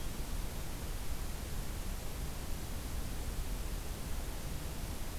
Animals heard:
forest ambience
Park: Acadia National Park